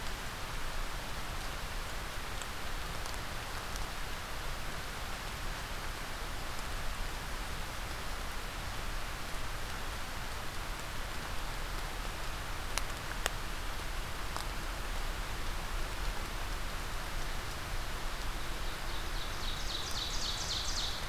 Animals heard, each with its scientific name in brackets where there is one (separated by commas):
Ovenbird (Seiurus aurocapilla)